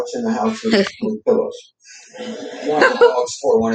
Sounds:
Laughter